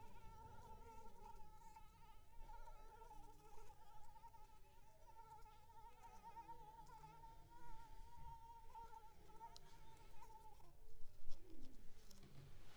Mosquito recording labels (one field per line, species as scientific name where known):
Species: Anopheles arabiensis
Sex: female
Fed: unfed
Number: one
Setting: cup